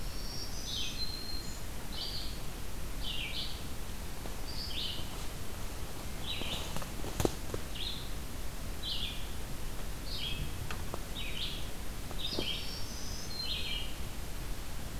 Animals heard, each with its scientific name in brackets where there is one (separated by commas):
Black-throated Green Warbler (Setophaga virens), Red-eyed Vireo (Vireo olivaceus)